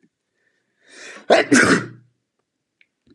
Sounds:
Sneeze